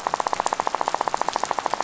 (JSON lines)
{"label": "biophony, rattle", "recorder": "SoundTrap 500"}